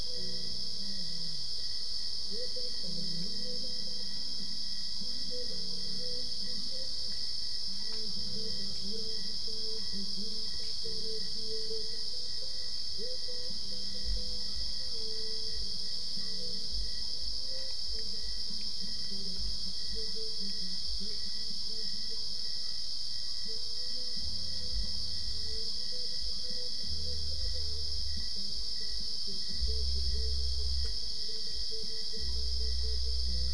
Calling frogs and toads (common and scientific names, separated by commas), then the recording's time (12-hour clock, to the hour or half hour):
none
4am